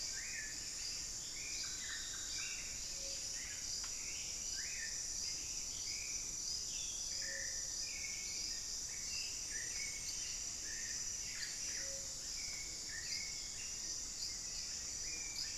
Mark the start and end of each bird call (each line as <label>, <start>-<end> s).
Black-billed Thrush (Turdus ignobilis), 0.0-15.6 s
Plumbeous Antbird (Myrmelastes hyperythrus), 8.1-12.0 s